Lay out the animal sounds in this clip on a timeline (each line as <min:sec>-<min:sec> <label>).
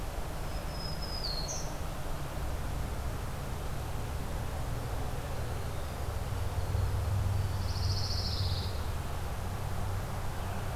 0:00.3-0:01.8 Black-throated Green Warbler (Setophaga virens)
0:04.9-0:07.6 Winter Wren (Troglodytes hiemalis)
0:07.5-0:09.0 Pine Warbler (Setophaga pinus)